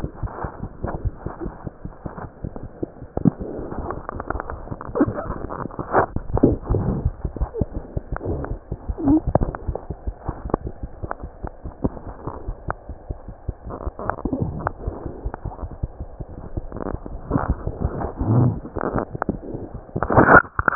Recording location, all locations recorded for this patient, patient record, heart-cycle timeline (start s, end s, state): mitral valve (MV)
aortic valve (AV)+mitral valve (MV)
#Age: Infant
#Sex: Male
#Height: nan
#Weight: nan
#Pregnancy status: False
#Murmur: Unknown
#Murmur locations: nan
#Most audible location: nan
#Systolic murmur timing: nan
#Systolic murmur shape: nan
#Systolic murmur grading: nan
#Systolic murmur pitch: nan
#Systolic murmur quality: nan
#Diastolic murmur timing: nan
#Diastolic murmur shape: nan
#Diastolic murmur grading: nan
#Diastolic murmur pitch: nan
#Diastolic murmur quality: nan
#Outcome: Normal
#Campaign: 2015 screening campaign
0.00	9.78	unannotated
9.78	9.88	diastole
9.88	9.94	S1
9.94	10.05	systole
10.05	10.13	S2
10.13	10.26	diastole
10.26	10.33	S1
10.33	10.43	systole
10.43	10.50	S2
10.50	10.63	diastole
10.63	10.70	S1
10.70	10.81	systole
10.81	10.87	S2
10.87	11.02	diastole
11.02	11.09	S1
11.09	11.22	systole
11.22	11.28	S2
11.28	11.42	diastole
11.42	11.48	S1
11.48	11.64	systole
11.64	11.71	S2
11.71	11.83	diastole
11.83	11.90	S1
11.90	12.06	systole
12.06	12.13	S2
12.13	12.26	diastole
12.26	12.34	S1
12.34	12.47	systole
12.47	12.54	S2
12.54	12.66	diastole
12.66	12.74	S1
12.74	12.88	systole
12.88	12.96	S2
12.96	13.08	diastole
13.08	13.16	S1
13.16	13.26	systole
13.26	13.34	S2
13.34	13.47	diastole
13.47	13.53	S1
13.53	13.64	systole
13.64	13.72	S2
13.72	13.85	diastole
13.85	13.92	S1
13.92	13.99	systole
13.99	20.75	unannotated